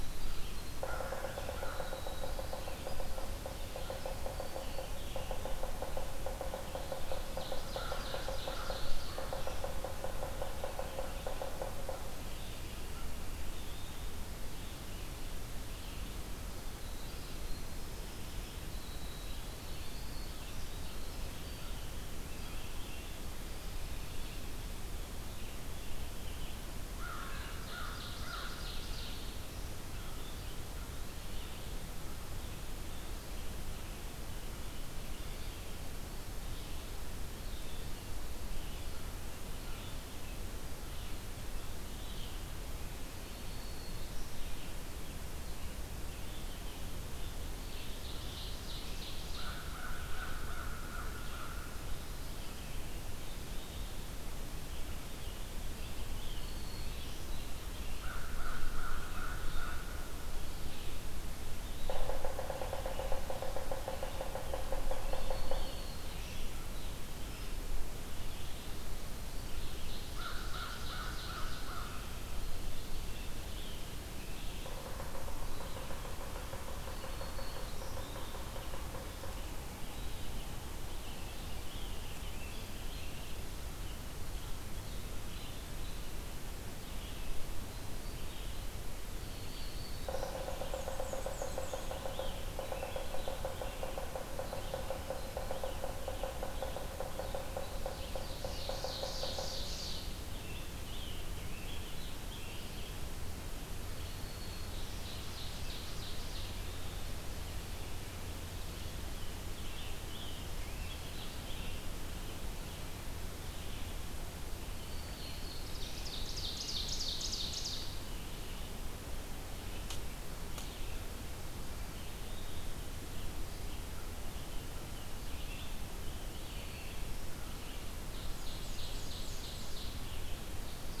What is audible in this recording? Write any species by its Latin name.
Troglodytes hiemalis, Vireo olivaceus, Sphyrapicus varius, Seiurus aurocapilla, Corvus brachyrhynchos, Setophaga virens, Turdus migratorius, Mniotilta varia